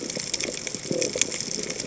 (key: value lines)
label: biophony
recorder: HydroMoth